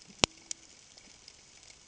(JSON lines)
{"label": "ambient", "recorder": "HydroMoth"}